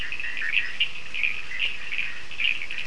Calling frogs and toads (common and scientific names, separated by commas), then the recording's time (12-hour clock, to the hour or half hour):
Bischoff's tree frog (Boana bischoffi), Cochran's lime tree frog (Sphaenorhynchus surdus)
9:30pm